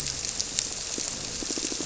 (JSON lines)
{"label": "biophony", "recorder": "SoundTrap 300"}